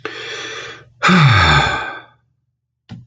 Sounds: Sigh